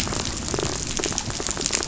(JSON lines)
{"label": "biophony, pulse", "recorder": "SoundTrap 500"}